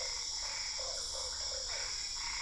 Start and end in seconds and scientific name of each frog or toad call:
0.0	2.4	Boana albopunctata
0.0	2.4	Physalaemus cuvieri
0.8	1.9	Boana lundii